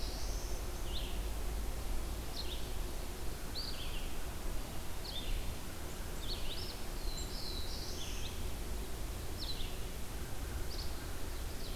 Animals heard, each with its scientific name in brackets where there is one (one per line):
American Crow (Corvus brachyrhynchos)
Black-throated Blue Warbler (Setophaga caerulescens)
Red-eyed Vireo (Vireo olivaceus)